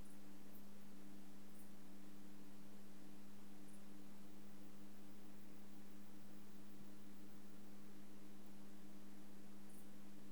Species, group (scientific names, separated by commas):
Poecilimon jonicus, Orthoptera